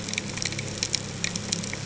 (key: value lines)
label: ambient
recorder: HydroMoth